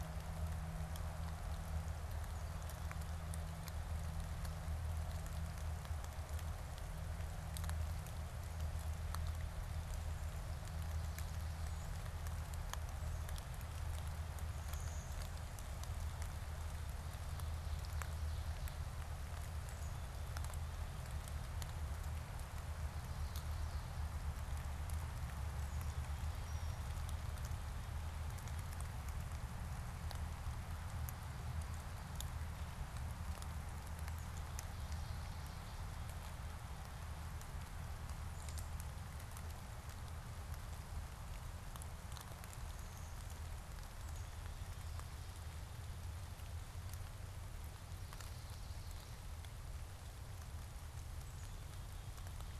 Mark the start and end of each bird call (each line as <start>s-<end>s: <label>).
14.4s-16.2s: Blue-winged Warbler (Vermivora cyanoptera)
25.6s-27.3s: Black-capped Chickadee (Poecile atricapillus)
34.3s-36.4s: Chestnut-sided Warbler (Setophaga pensylvanica)
47.7s-49.6s: Chestnut-sided Warbler (Setophaga pensylvanica)